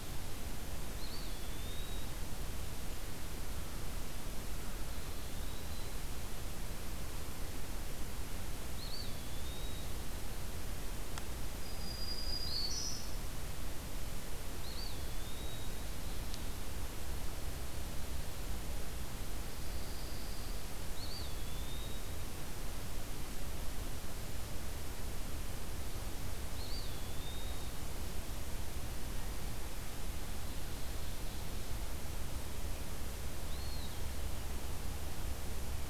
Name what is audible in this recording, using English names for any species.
Eastern Wood-Pewee, Black-throated Green Warbler, Pine Warbler